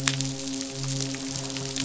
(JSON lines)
{"label": "biophony, midshipman", "recorder": "SoundTrap 500"}